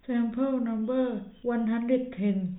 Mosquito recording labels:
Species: no mosquito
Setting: cup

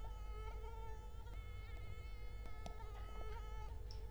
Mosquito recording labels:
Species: Culex quinquefasciatus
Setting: cup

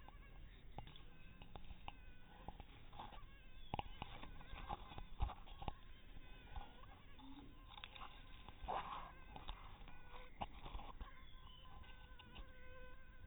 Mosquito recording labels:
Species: no mosquito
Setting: cup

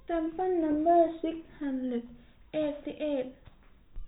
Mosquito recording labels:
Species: no mosquito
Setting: cup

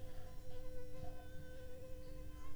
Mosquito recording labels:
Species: Anopheles funestus s.s.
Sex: female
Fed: unfed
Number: one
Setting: cup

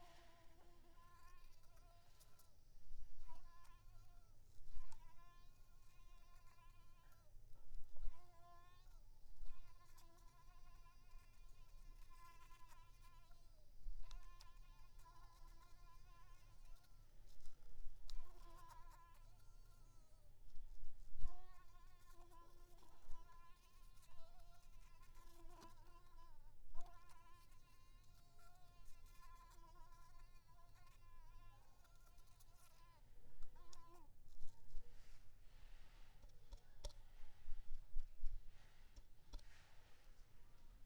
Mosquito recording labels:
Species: Mansonia uniformis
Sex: female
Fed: unfed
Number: one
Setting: cup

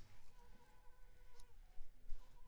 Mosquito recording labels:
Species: Culex pipiens complex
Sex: female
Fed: unfed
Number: one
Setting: cup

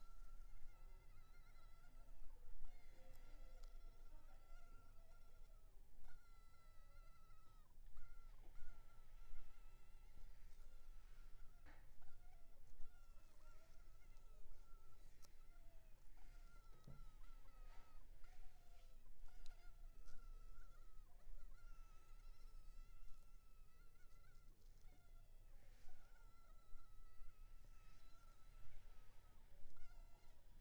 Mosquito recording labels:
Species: Culex pipiens complex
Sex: male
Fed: unfed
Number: one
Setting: cup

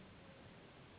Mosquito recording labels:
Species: Anopheles gambiae s.s.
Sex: female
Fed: unfed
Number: one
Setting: insect culture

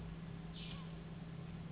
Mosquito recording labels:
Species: Anopheles gambiae s.s.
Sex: female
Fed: unfed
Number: one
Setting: insect culture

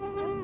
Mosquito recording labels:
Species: Anopheles quadriannulatus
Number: several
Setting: insect culture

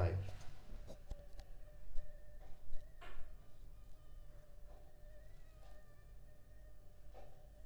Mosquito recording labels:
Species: Anopheles funestus s.s.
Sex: female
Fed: unfed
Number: one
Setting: cup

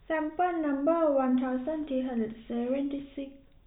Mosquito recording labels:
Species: no mosquito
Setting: cup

